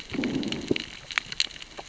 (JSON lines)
{"label": "biophony, growl", "recorder": "SoundTrap 600 or HydroMoth"}